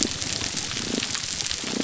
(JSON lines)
{"label": "biophony, damselfish", "recorder": "SoundTrap 300"}